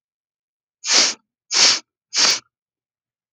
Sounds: Sniff